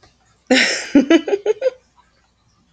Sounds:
Laughter